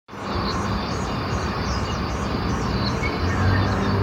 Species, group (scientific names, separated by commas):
Cryptotympana holsti, Cicadidae